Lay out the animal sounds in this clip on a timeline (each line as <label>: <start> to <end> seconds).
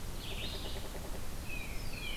Pileated Woodpecker (Dryocopus pileatus): 0.0 to 1.4 seconds
Red-eyed Vireo (Vireo olivaceus): 0.0 to 2.2 seconds
Tufted Titmouse (Baeolophus bicolor): 1.3 to 2.2 seconds
Black-throated Blue Warbler (Setophaga caerulescens): 1.6 to 2.2 seconds